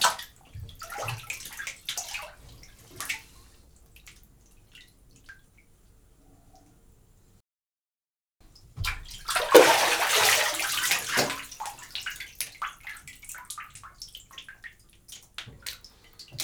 Is there splashing?
yes